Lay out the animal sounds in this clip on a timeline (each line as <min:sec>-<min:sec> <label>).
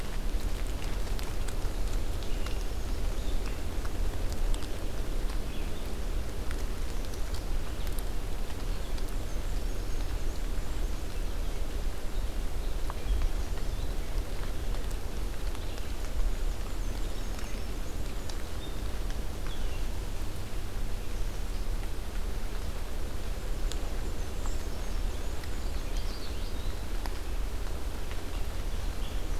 0:01.6-0:03.3 Black-and-white Warbler (Mniotilta varia)
0:01.9-0:29.4 Red-eyed Vireo (Vireo olivaceus)
0:09.1-0:11.1 Black-and-white Warbler (Mniotilta varia)
0:16.1-0:18.5 Black-and-white Warbler (Mniotilta varia)
0:23.5-0:25.6 Black-and-white Warbler (Mniotilta varia)
0:25.2-0:26.8 Common Yellowthroat (Geothlypis trichas)